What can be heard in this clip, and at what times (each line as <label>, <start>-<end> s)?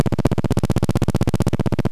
recorder noise, 0-2 s